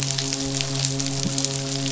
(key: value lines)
label: biophony, midshipman
recorder: SoundTrap 500